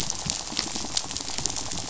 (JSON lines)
{"label": "biophony, rattle", "recorder": "SoundTrap 500"}